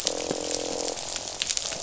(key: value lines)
label: biophony, croak
recorder: SoundTrap 500